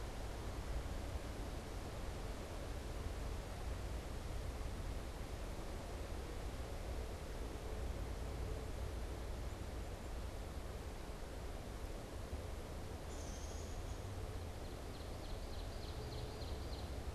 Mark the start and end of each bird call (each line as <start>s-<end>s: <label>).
12.9s-14.3s: Downy Woodpecker (Dryobates pubescens)
14.3s-17.1s: Ovenbird (Seiurus aurocapilla)